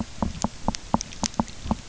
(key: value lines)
label: biophony, knock
recorder: SoundTrap 300